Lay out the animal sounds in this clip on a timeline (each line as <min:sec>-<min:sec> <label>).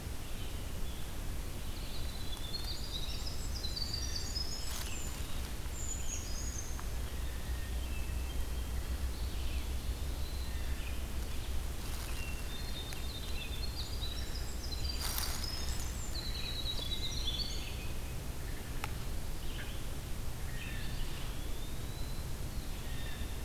0:01.7-0:05.5 Winter Wren (Troglodytes hiemalis)
0:05.6-0:06.9 Brown Creeper (Certhia americana)
0:07.0-0:08.6 Hermit Thrush (Catharus guttatus)
0:12.0-0:13.3 Hermit Thrush (Catharus guttatus)
0:13.4-0:18.3 Winter Wren (Troglodytes hiemalis)
0:20.3-0:21.1 Blue Jay (Cyanocitta cristata)
0:21.1-0:22.5 Eastern Wood-Pewee (Contopus virens)
0:22.7-0:23.4 Blue Jay (Cyanocitta cristata)